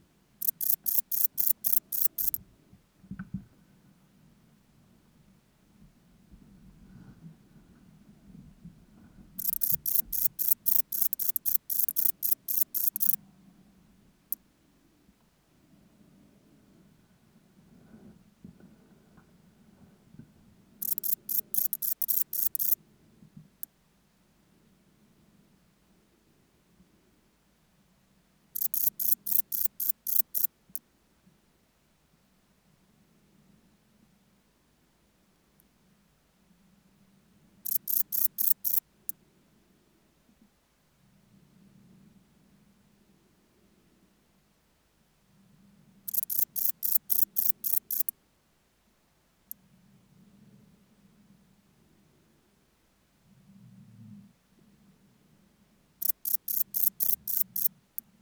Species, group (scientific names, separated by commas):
Broughtonia domogledi, Orthoptera